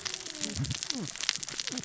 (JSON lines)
{"label": "biophony, cascading saw", "recorder": "SoundTrap 600 or HydroMoth"}